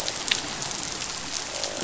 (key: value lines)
label: biophony, croak
recorder: SoundTrap 500